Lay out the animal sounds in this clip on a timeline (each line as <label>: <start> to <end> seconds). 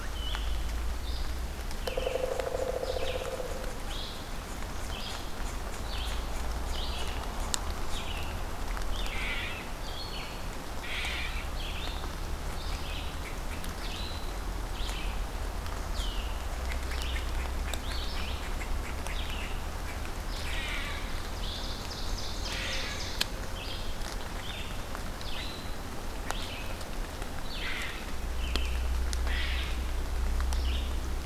Red-eyed Vireo (Vireo olivaceus): 0.0 to 31.3 seconds
Pileated Woodpecker (Dryocopus pileatus): 1.8 to 3.7 seconds
unknown mammal: 8.9 to 9.8 seconds
unknown mammal: 10.6 to 11.6 seconds
unknown mammal: 16.5 to 19.9 seconds
unknown mammal: 20.2 to 21.5 seconds
Ovenbird (Seiurus aurocapilla): 21.1 to 23.2 seconds
unknown mammal: 22.3 to 23.1 seconds
unknown mammal: 29.1 to 30.2 seconds